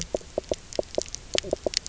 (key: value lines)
label: biophony, knock croak
recorder: SoundTrap 300